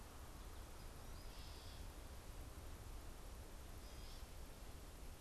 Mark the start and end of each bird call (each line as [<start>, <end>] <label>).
[0.00, 1.90] American Goldfinch (Spinus tristis)
[1.10, 5.21] Gray Catbird (Dumetella carolinensis)